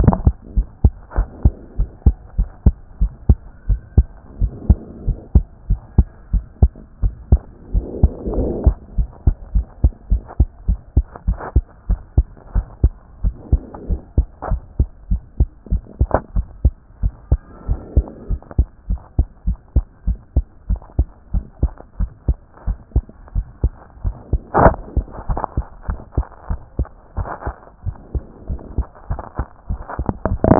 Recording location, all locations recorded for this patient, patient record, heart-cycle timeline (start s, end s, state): tricuspid valve (TV)
aortic valve (AV)+pulmonary valve (PV)+tricuspid valve (TV)+mitral valve (MV)
#Age: Child
#Sex: Female
#Height: 103.0 cm
#Weight: 14.0 kg
#Pregnancy status: False
#Murmur: Absent
#Murmur locations: nan
#Most audible location: nan
#Systolic murmur timing: nan
#Systolic murmur shape: nan
#Systolic murmur grading: nan
#Systolic murmur pitch: nan
#Systolic murmur quality: nan
#Diastolic murmur timing: nan
#Diastolic murmur shape: nan
#Diastolic murmur grading: nan
#Diastolic murmur pitch: nan
#Diastolic murmur quality: nan
#Outcome: Abnormal
#Campaign: 2014 screening campaign
0.00	0.56	unannotated
0.56	0.66	S1
0.66	0.82	systole
0.82	0.92	S2
0.92	1.16	diastole
1.16	1.28	S1
1.28	1.44	systole
1.44	1.54	S2
1.54	1.78	diastole
1.78	1.90	S1
1.90	2.04	systole
2.04	2.16	S2
2.16	2.38	diastole
2.38	2.48	S1
2.48	2.64	systole
2.64	2.74	S2
2.74	3.00	diastole
3.00	3.12	S1
3.12	3.28	systole
3.28	3.38	S2
3.38	3.68	diastole
3.68	3.80	S1
3.80	3.96	systole
3.96	4.06	S2
4.06	4.40	diastole
4.40	4.52	S1
4.52	4.68	systole
4.68	4.78	S2
4.78	5.06	diastole
5.06	5.18	S1
5.18	5.34	systole
5.34	5.44	S2
5.44	5.68	diastole
5.68	5.80	S1
5.80	5.96	systole
5.96	6.06	S2
6.06	6.32	diastole
6.32	6.44	S1
6.44	6.60	systole
6.60	6.72	S2
6.72	7.02	diastole
7.02	7.14	S1
7.14	7.30	systole
7.30	7.40	S2
7.40	7.74	diastole
7.74	7.86	S1
7.86	8.02	systole
8.02	8.12	S2
8.12	8.36	diastole
8.36	8.50	S1
8.50	8.64	systole
8.64	8.74	S2
8.74	8.98	diastole
8.98	9.08	S1
9.08	9.26	systole
9.26	9.34	S2
9.34	9.54	diastole
9.54	9.66	S1
9.66	9.82	systole
9.82	9.92	S2
9.92	10.10	diastole
10.10	10.22	S1
10.22	10.38	systole
10.38	10.48	S2
10.48	10.68	diastole
10.68	10.78	S1
10.78	10.96	systole
10.96	11.06	S2
11.06	11.26	diastole
11.26	11.38	S1
11.38	11.54	systole
11.54	11.64	S2
11.64	11.88	diastole
11.88	12.00	S1
12.00	12.16	systole
12.16	12.26	S2
12.26	12.54	diastole
12.54	12.66	S1
12.66	12.82	systole
12.82	12.92	S2
12.92	13.24	diastole
13.24	13.34	S1
13.34	13.52	systole
13.52	13.62	S2
13.62	13.88	diastole
13.88	14.00	S1
14.00	14.16	systole
14.16	14.26	S2
14.26	14.50	diastole
14.50	14.62	S1
14.62	14.78	systole
14.78	14.88	S2
14.88	15.10	diastole
15.10	15.22	S1
15.22	15.38	systole
15.38	15.48	S2
15.48	15.70	diastole
15.70	15.82	S1
15.82	16.00	systole
16.00	16.08	S2
16.08	16.36	diastole
16.36	16.46	S1
16.46	16.64	systole
16.64	16.74	S2
16.74	17.02	diastole
17.02	17.14	S1
17.14	17.30	systole
17.30	17.40	S2
17.40	17.68	diastole
17.68	17.80	S1
17.80	17.96	systole
17.96	18.06	S2
18.06	18.30	diastole
18.30	18.40	S1
18.40	18.58	systole
18.58	18.68	S2
18.68	18.90	diastole
18.90	19.00	S1
19.00	19.18	systole
19.18	19.26	S2
19.26	19.46	diastole
19.46	19.58	S1
19.58	19.74	systole
19.74	19.84	S2
19.84	20.06	diastole
20.06	20.18	S1
20.18	20.36	systole
20.36	20.44	S2
20.44	20.68	diastole
20.68	20.80	S1
20.80	20.98	systole
20.98	21.08	S2
21.08	21.34	diastole
21.34	21.44	S1
21.44	21.62	systole
21.62	21.72	S2
21.72	22.00	diastole
22.00	22.10	S1
22.10	22.28	systole
22.28	22.38	S2
22.38	22.66	diastole
22.66	22.78	S1
22.78	22.94	systole
22.94	23.04	S2
23.04	23.34	diastole
23.34	23.46	S1
23.46	23.62	systole
23.62	23.72	S2
23.72	24.04	diastole
24.04	24.16	S1
24.16	24.32	systole
24.32	24.40	S2
24.40	24.65	diastole
24.65	24.76	S1
24.76	24.96	systole
24.96	25.06	S2
25.06	25.28	diastole
25.28	25.40	S1
25.40	25.56	systole
25.56	25.66	S2
25.66	25.88	diastole
25.88	25.98	S1
25.98	26.16	systole
26.16	26.26	S2
26.26	26.50	diastole
26.50	26.60	S1
26.60	26.78	systole
26.78	26.88	S2
26.88	27.18	diastole
27.18	27.28	S1
27.28	27.46	systole
27.46	27.56	S2
27.56	27.84	diastole
27.84	27.96	S1
27.96	28.14	systole
28.14	28.24	S2
28.24	28.48	diastole
28.48	28.60	S1
28.60	28.76	systole
28.76	28.86	S2
28.86	29.10	diastole
29.10	29.20	S1
29.20	29.38	systole
29.38	29.48	S2
29.48	29.70	diastole
29.70	30.59	unannotated